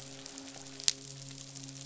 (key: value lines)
label: biophony, midshipman
recorder: SoundTrap 500